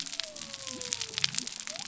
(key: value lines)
label: biophony
recorder: SoundTrap 300